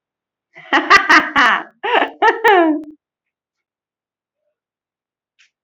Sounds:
Laughter